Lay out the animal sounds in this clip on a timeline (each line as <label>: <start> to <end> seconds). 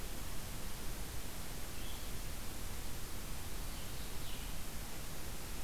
Blue-headed Vireo (Vireo solitarius): 0.0 to 5.6 seconds